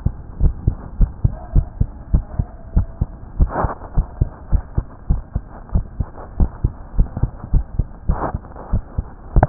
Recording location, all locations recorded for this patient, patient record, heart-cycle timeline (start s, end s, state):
tricuspid valve (TV)
aortic valve (AV)+pulmonary valve (PV)+tricuspid valve (TV)+mitral valve (MV)
#Age: Adolescent
#Sex: Male
#Height: nan
#Weight: nan
#Pregnancy status: False
#Murmur: Absent
#Murmur locations: nan
#Most audible location: nan
#Systolic murmur timing: nan
#Systolic murmur shape: nan
#Systolic murmur grading: nan
#Systolic murmur pitch: nan
#Systolic murmur quality: nan
#Diastolic murmur timing: nan
#Diastolic murmur shape: nan
#Diastolic murmur grading: nan
#Diastolic murmur pitch: nan
#Diastolic murmur quality: nan
#Outcome: Abnormal
#Campaign: 2015 screening campaign
0.00	0.13	unannotated
0.13	0.38	diastole
0.38	0.54	S1
0.54	0.64	systole
0.64	0.75	S2
0.75	0.95	diastole
0.95	1.12	S1
1.12	1.20	systole
1.20	1.32	S2
1.32	1.52	diastole
1.52	1.68	S1
1.68	1.78	systole
1.78	1.88	S2
1.88	2.09	diastole
2.09	2.26	S1
2.26	2.34	systole
2.34	2.46	S2
2.46	2.72	diastole
2.72	2.87	S1
2.87	2.99	systole
2.99	3.10	S2
3.10	3.36	diastole
3.36	3.50	S1
3.50	3.58	systole
3.58	3.70	S2
3.70	3.93	diastole
3.93	4.06	S1
4.06	4.17	systole
4.17	4.30	S2
4.30	4.49	diastole
4.49	4.65	S1
4.65	4.74	systole
4.74	4.86	S2
4.86	5.06	diastole
5.06	5.22	S1
5.22	5.33	systole
5.33	5.44	S2
5.44	5.70	diastole
5.70	5.86	S1
5.86	5.97	systole
5.97	6.08	S2
6.08	6.36	diastole
6.36	6.52	S1
6.52	6.62	systole
6.62	6.72	S2
6.72	6.94	diastole
6.94	7.08	S1
7.08	7.18	systole
7.18	7.32	S2
7.32	7.50	diastole
7.50	7.66	S1
7.66	7.74	systole
7.74	7.88	S2
7.88	8.03	diastole
8.03	9.49	unannotated